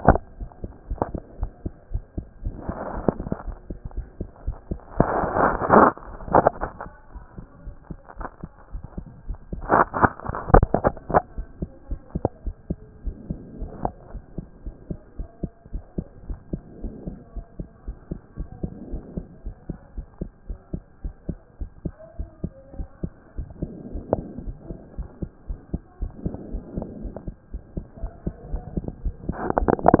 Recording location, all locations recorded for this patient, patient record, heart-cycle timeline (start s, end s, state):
pulmonary valve (PV)
aortic valve (AV)+pulmonary valve (PV)+tricuspid valve (TV)+mitral valve (MV)
#Age: Child
#Sex: Male
#Height: 135.0 cm
#Weight: 28.2 kg
#Pregnancy status: False
#Murmur: Absent
#Murmur locations: nan
#Most audible location: nan
#Systolic murmur timing: nan
#Systolic murmur shape: nan
#Systolic murmur grading: nan
#Systolic murmur pitch: nan
#Systolic murmur quality: nan
#Diastolic murmur timing: nan
#Diastolic murmur shape: nan
#Diastolic murmur grading: nan
#Diastolic murmur pitch: nan
#Diastolic murmur quality: nan
#Outcome: Normal
#Campaign: 2014 screening campaign
0.00	13.04	unannotated
13.04	13.16	S1
13.16	13.28	systole
13.28	13.38	S2
13.38	13.60	diastole
13.60	13.70	S1
13.70	13.84	systole
13.84	13.94	S2
13.94	14.12	diastole
14.12	14.22	S1
14.22	14.36	systole
14.36	14.46	S2
14.46	14.64	diastole
14.64	14.74	S1
14.74	14.90	systole
14.90	14.98	S2
14.98	15.18	diastole
15.18	15.28	S1
15.28	15.42	systole
15.42	15.52	S2
15.52	15.72	diastole
15.72	15.82	S1
15.82	15.96	systole
15.96	16.06	S2
16.06	16.28	diastole
16.28	16.38	S1
16.38	16.52	systole
16.52	16.60	S2
16.60	16.82	diastole
16.82	16.94	S1
16.94	17.06	systole
17.06	17.16	S2
17.16	17.34	diastole
17.34	17.46	S1
17.46	17.58	systole
17.58	17.68	S2
17.68	17.86	diastole
17.86	17.96	S1
17.96	18.10	systole
18.10	18.20	S2
18.20	18.38	diastole
18.38	18.48	S1
18.48	18.62	systole
18.62	18.70	S2
18.70	18.90	diastole
18.90	19.02	S1
19.02	19.16	systole
19.16	19.26	S2
19.26	19.44	diastole
19.44	19.54	S1
19.54	19.68	systole
19.68	19.78	S2
19.78	19.96	diastole
19.96	20.06	S1
20.06	20.20	systole
20.20	20.30	S2
20.30	20.48	diastole
20.48	20.58	S1
20.58	20.72	systole
20.72	20.82	S2
20.82	21.04	diastole
21.04	21.14	S1
21.14	21.28	systole
21.28	21.38	S2
21.38	21.60	diastole
21.60	21.70	S1
21.70	21.84	systole
21.84	21.94	S2
21.94	22.18	diastole
22.18	22.28	S1
22.28	22.42	systole
22.42	22.52	S2
22.52	22.76	diastole
22.76	22.88	S1
22.88	23.02	systole
23.02	23.12	S2
23.12	23.36	diastole
23.36	23.48	S1
23.48	23.60	systole
23.60	23.70	S2
23.70	23.92	diastole
23.92	24.04	S1
24.04	24.14	systole
24.14	24.24	S2
24.24	24.44	diastole
24.44	24.56	S1
24.56	24.70	systole
24.70	24.78	S2
24.78	24.96	diastole
24.96	25.08	S1
25.08	25.20	systole
25.20	25.30	S2
25.30	25.48	diastole
25.48	25.58	S1
25.58	25.72	systole
25.72	25.82	S2
25.82	26.02	diastole
26.02	26.12	S1
26.12	26.24	systole
26.24	26.34	S2
26.34	26.52	diastole
26.52	26.62	S1
26.62	26.74	systole
26.74	26.86	S2
26.86	27.02	diastole
27.02	27.14	S1
27.14	27.26	systole
27.26	27.36	S2
27.36	27.52	diastole
27.52	27.62	S1
27.62	27.76	systole
27.76	27.84	S2
27.84	28.02	diastole
28.02	28.12	S1
28.12	28.24	systole
28.24	28.34	S2
28.34	28.52	diastole
28.52	30.00	unannotated